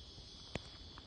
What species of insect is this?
Psaltoda plaga